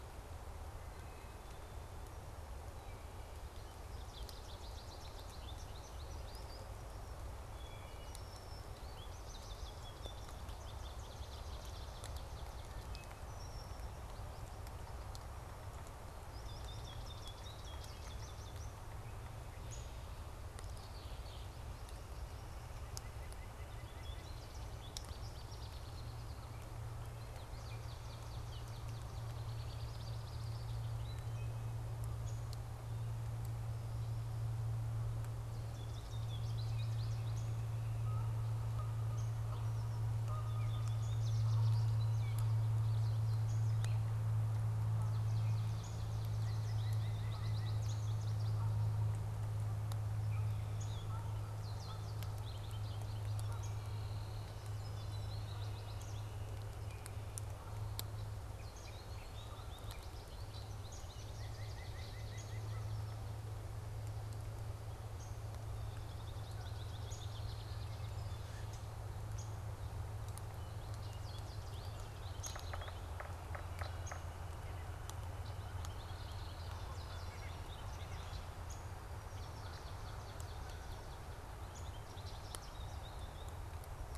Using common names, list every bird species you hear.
American Goldfinch, Wood Thrush, Red-winged Blackbird, Downy Woodpecker, White-breasted Nuthatch, Swamp Sparrow, Canada Goose, Gray Catbird, Yellow-bellied Sapsucker